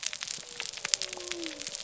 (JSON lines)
{"label": "biophony", "recorder": "SoundTrap 300"}